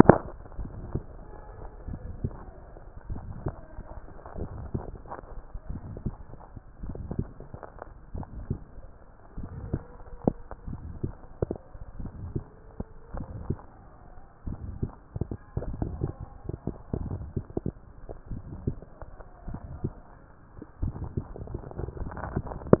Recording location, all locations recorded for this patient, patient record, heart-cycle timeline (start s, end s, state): mitral valve (MV)
aortic valve (AV)+pulmonary valve (PV)+tricuspid valve (TV)+mitral valve (MV)
#Age: Adolescent
#Sex: Male
#Height: 148.0 cm
#Weight: 35.2 kg
#Pregnancy status: False
#Murmur: Present
#Murmur locations: aortic valve (AV)+mitral valve (MV)+pulmonary valve (PV)+tricuspid valve (TV)
#Most audible location: pulmonary valve (PV)
#Systolic murmur timing: Holosystolic
#Systolic murmur shape: Diamond
#Systolic murmur grading: III/VI or higher
#Systolic murmur pitch: Medium
#Systolic murmur quality: Harsh
#Diastolic murmur timing: Early-diastolic
#Diastolic murmur shape: Decrescendo
#Diastolic murmur grading: III/IV or IV/IV
#Diastolic murmur pitch: Medium
#Diastolic murmur quality: Blowing
#Outcome: Abnormal
#Campaign: 2014 screening campaign
0.00	0.37	unannotated
0.37	0.58	diastole
0.58	0.70	S1
0.70	0.92	systole
0.92	1.02	S2
1.02	1.88	diastole
1.88	2.00	S1
2.00	2.22	systole
2.22	2.34	S2
2.34	3.10	diastole
3.10	3.22	S1
3.22	3.44	systole
3.44	3.54	S2
3.54	4.40	diastole
4.40	4.50	S1
4.50	4.74	systole
4.74	4.82	S2
4.82	5.70	diastole
5.70	5.82	S1
5.82	6.04	systole
6.04	6.14	S2
6.14	6.84	diastole
6.84	6.98	S1
6.98	7.16	systole
7.16	7.28	S2
7.28	8.14	diastole
8.14	8.26	S1
8.26	8.48	systole
8.48	8.58	S2
8.58	9.38	diastole
9.38	22.80	unannotated